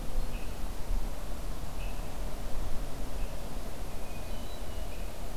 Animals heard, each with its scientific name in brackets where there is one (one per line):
Hermit Thrush (Catharus guttatus)